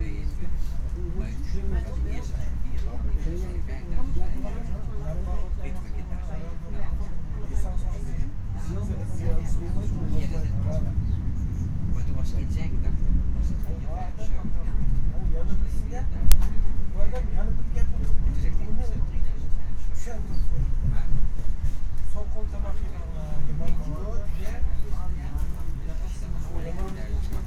Are people talking?
yes